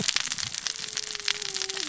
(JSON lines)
{"label": "biophony, cascading saw", "recorder": "SoundTrap 600 or HydroMoth"}